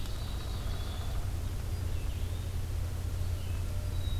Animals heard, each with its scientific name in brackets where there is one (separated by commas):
Downy Woodpecker (Dryobates pubescens), Yellow-bellied Flycatcher (Empidonax flaviventris), Ovenbird (Seiurus aurocapilla), Black-capped Chickadee (Poecile atricapillus), Red-eyed Vireo (Vireo olivaceus)